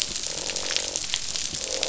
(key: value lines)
label: biophony, croak
recorder: SoundTrap 500